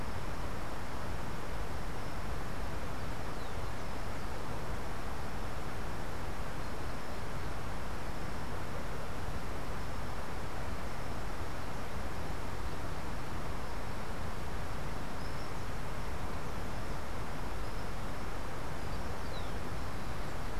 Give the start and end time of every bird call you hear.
[18.51, 19.81] Rufous-collared Sparrow (Zonotrichia capensis)

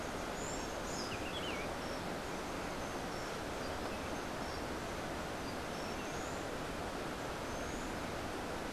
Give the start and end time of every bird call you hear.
[0.00, 8.72] Buff-throated Saltator (Saltator maximus)

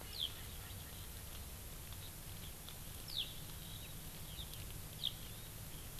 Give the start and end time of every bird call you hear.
[0.00, 1.20] Erckel's Francolin (Pternistis erckelii)
[0.10, 0.30] Eurasian Skylark (Alauda arvensis)
[3.10, 3.30] Eurasian Skylark (Alauda arvensis)
[5.00, 5.10] Eurasian Skylark (Alauda arvensis)

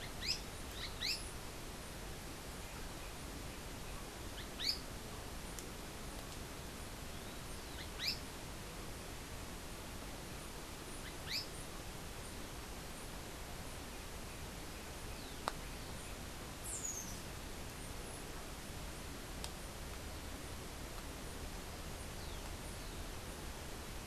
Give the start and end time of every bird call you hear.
[0.00, 11.60] Azara's Spinetail (Synallaxis azarae)

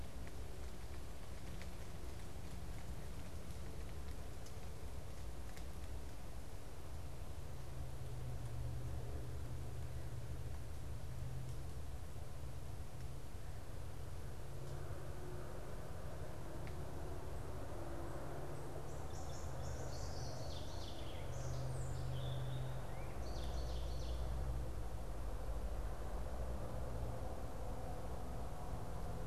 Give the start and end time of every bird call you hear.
[18.63, 24.43] Ovenbird (Seiurus aurocapilla)

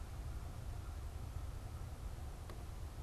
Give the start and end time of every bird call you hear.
[0.00, 2.46] American Crow (Corvus brachyrhynchos)

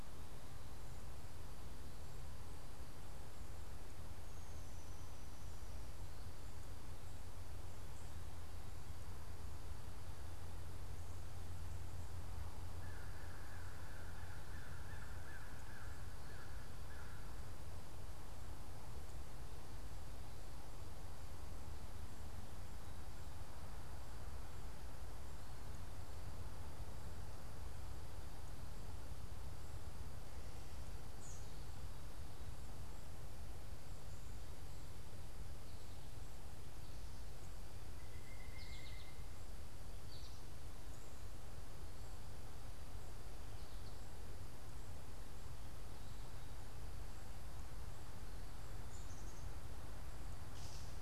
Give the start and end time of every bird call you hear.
[12.52, 17.42] American Crow (Corvus brachyrhynchos)
[31.02, 31.52] Black-capped Chickadee (Poecile atricapillus)
[38.12, 39.32] unidentified bird
[38.32, 40.62] American Goldfinch (Spinus tristis)
[48.82, 49.52] Black-capped Chickadee (Poecile atricapillus)
[50.42, 50.92] Gray Catbird (Dumetella carolinensis)

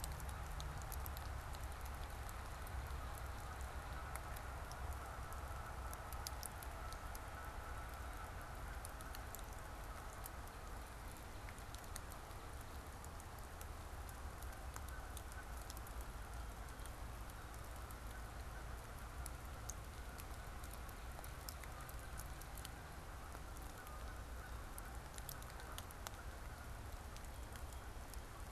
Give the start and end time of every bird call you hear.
[2.19, 28.49] Canada Goose (Branta canadensis)

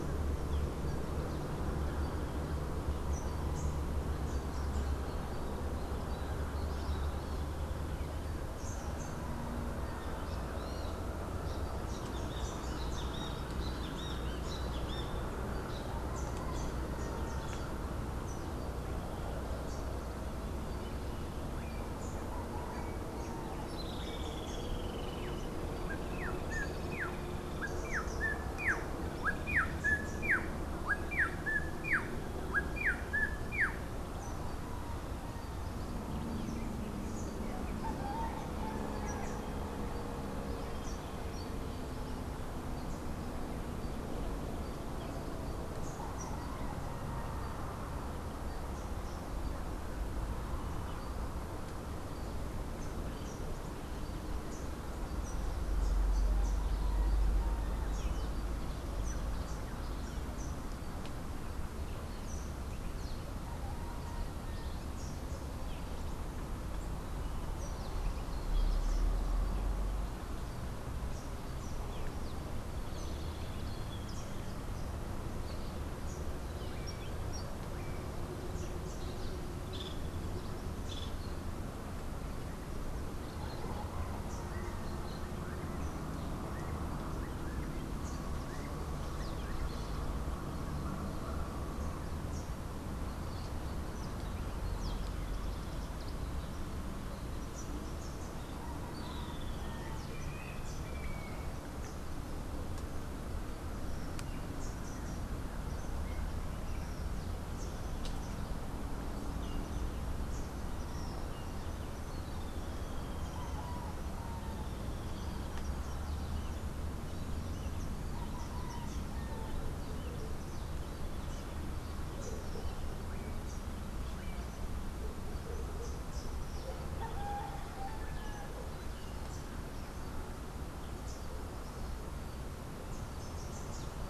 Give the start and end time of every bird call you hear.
[10.55, 15.65] Great Kiskadee (Pitangus sulphuratus)
[23.75, 25.65] Streak-headed Woodcreeper (Lepidocolaptes souleyetii)
[25.95, 34.15] Rufous-naped Wren (Campylorhynchus rufinucha)
[83.35, 90.05] Rufous-naped Wren (Campylorhynchus rufinucha)
[98.85, 100.05] Streak-headed Woodcreeper (Lepidocolaptes souleyetii)
[117.35, 123.85] Rufous-capped Warbler (Basileuterus rufifrons)
[125.05, 134.05] Rufous-capped Warbler (Basileuterus rufifrons)

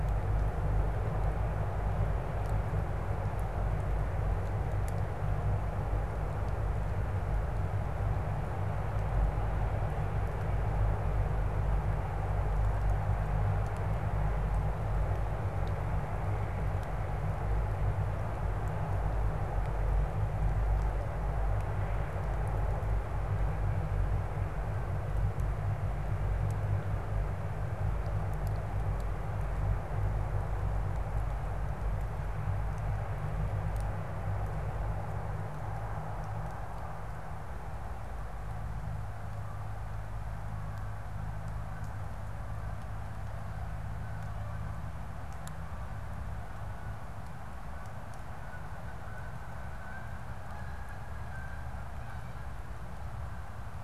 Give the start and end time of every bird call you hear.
[40.18, 53.84] Canada Goose (Branta canadensis)

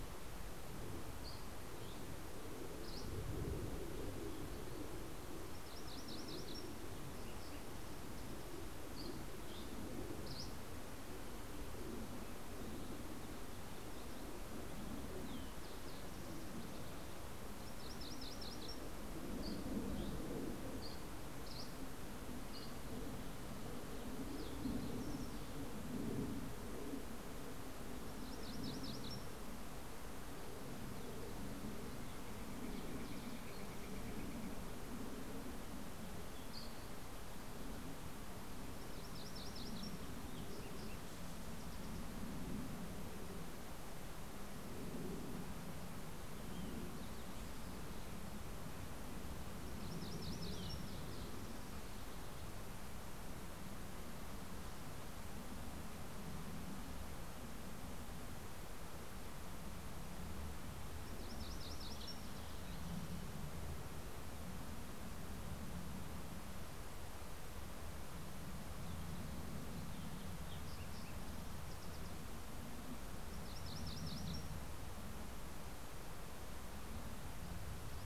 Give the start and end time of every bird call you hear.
[0.07, 3.96] Dusky Flycatcher (Empidonax oberholseri)
[4.96, 7.17] MacGillivray's Warbler (Geothlypis tolmiei)
[8.46, 11.27] Dusky Flycatcher (Empidonax oberholseri)
[13.77, 17.16] Fox Sparrow (Passerella iliaca)
[17.27, 19.27] MacGillivray's Warbler (Geothlypis tolmiei)
[18.77, 23.16] Dusky Flycatcher (Empidonax oberholseri)
[22.16, 26.07] Green-tailed Towhee (Pipilo chlorurus)
[27.46, 29.77] MacGillivray's Warbler (Geothlypis tolmiei)
[31.27, 35.37] Northern Flicker (Colaptes auratus)
[35.47, 37.27] Dusky Flycatcher (Empidonax oberholseri)
[38.37, 40.06] MacGillivray's Warbler (Geothlypis tolmiei)
[40.06, 42.37] Fox Sparrow (Passerella iliaca)
[49.06, 50.77] MacGillivray's Warbler (Geothlypis tolmiei)
[60.56, 62.27] MacGillivray's Warbler (Geothlypis tolmiei)
[67.47, 72.36] Green-tailed Towhee (Pipilo chlorurus)
[72.86, 74.97] MacGillivray's Warbler (Geothlypis tolmiei)

